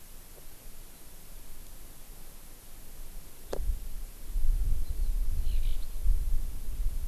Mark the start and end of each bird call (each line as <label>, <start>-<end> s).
Eurasian Skylark (Alauda arvensis), 5.3-5.7 s